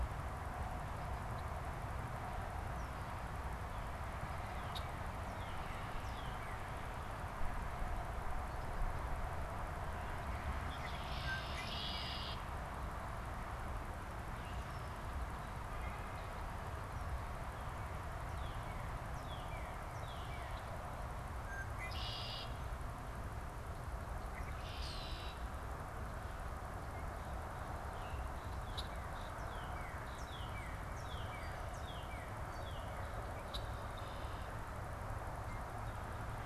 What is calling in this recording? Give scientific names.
Cardinalis cardinalis, Agelaius phoeniceus, Quiscalus quiscula